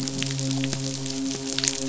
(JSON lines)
{"label": "biophony, midshipman", "recorder": "SoundTrap 500"}